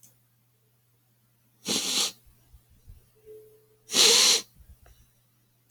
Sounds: Sniff